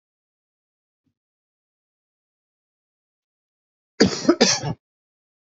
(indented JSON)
{
  "expert_labels": [
    {
      "quality": "good",
      "cough_type": "dry",
      "dyspnea": false,
      "wheezing": false,
      "stridor": false,
      "choking": false,
      "congestion": false,
      "nothing": true,
      "diagnosis": "healthy cough",
      "severity": "pseudocough/healthy cough"
    }
  ],
  "age": 19,
  "gender": "male",
  "respiratory_condition": false,
  "fever_muscle_pain": false,
  "status": "healthy"
}